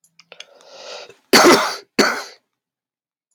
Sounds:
Cough